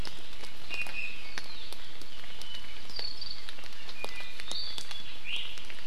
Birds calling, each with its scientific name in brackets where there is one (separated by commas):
Iiwi (Drepanis coccinea)